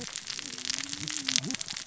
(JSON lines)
{"label": "biophony, cascading saw", "recorder": "SoundTrap 600 or HydroMoth"}